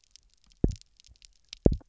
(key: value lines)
label: biophony, double pulse
recorder: SoundTrap 300